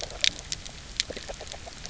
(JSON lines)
{"label": "biophony, grazing", "recorder": "SoundTrap 300"}